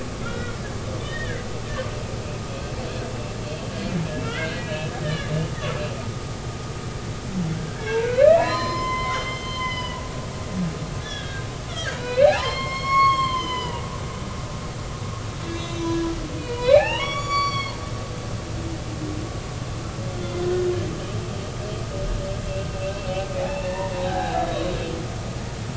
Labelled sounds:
0.2	1.4	humpback whale, 1.3 to 3.8 kHz
4.2	5.3	humpback whale, 1.3 to 3.7 kHz
7.6	10.2	humpback whale, 0.90 to 6.3 kHz
11.0	13.9	humpback whale, 0.80 to 7.6 kHz
15.3	18.1	humpback whale, 0.80 to 8.0 kHz
22.7	24.7	humpback whale, 0.80 to 3.9 kHz

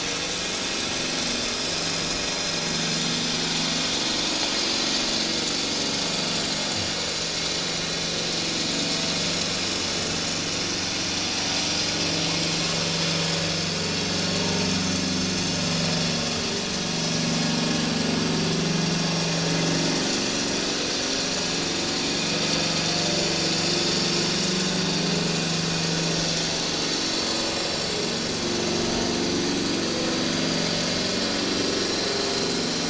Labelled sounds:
1.0	1.7	vessel noise, 4.3 to 5.0 kHz
4.1	4.5	vessel noise, 6.4 to 6.9 kHz
19.8	20.6	vessel noise, 5.6 to 7.3 kHz
23.5	23.8	vessel noise, 5.4 to 5.5 kHz

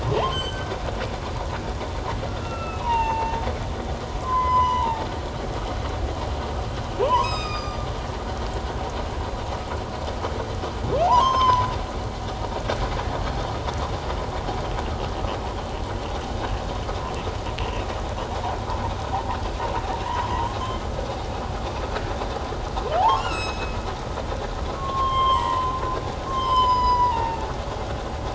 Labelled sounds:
0.1	0.7	humpback whale, 0.78 to 7.8 kHz
2.3	3.4	humpback whale, 0.81 to 2.9 kHz
4.2	5.1	humpback whale, 0.84 to 6.1 kHz
7.0	7.8	humpback whale, 0.81 to 7.7 kHz
11.0	11.7	humpback whale, 0.78 to 6.6 kHz
17.6	17.9	humpback whale, 2.5 to 2.9 kHz
23.0	23.8	humpback whale, 0.78 to 6.6 kHz
24.8	25.7	humpback whale, 0.88 to 3.4 kHz
26.3	27.5	humpback whale, 0.81 to 8.0 kHz

